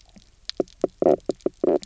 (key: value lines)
label: biophony, knock croak
recorder: SoundTrap 300